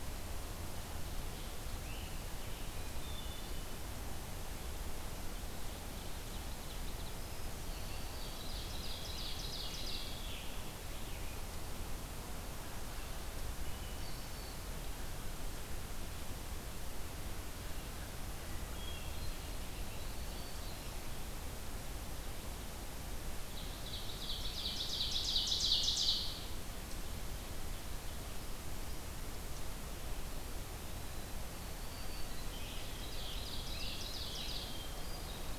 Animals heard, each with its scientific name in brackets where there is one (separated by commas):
Ovenbird (Seiurus aurocapilla), Black-throated Green Warbler (Setophaga virens), Hermit Thrush (Catharus guttatus), Scarlet Tanager (Piranga olivacea)